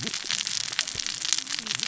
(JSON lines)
{"label": "biophony, cascading saw", "recorder": "SoundTrap 600 or HydroMoth"}